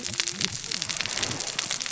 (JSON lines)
{"label": "biophony, cascading saw", "recorder": "SoundTrap 600 or HydroMoth"}